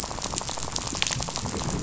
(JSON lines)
{"label": "biophony, rattle", "recorder": "SoundTrap 500"}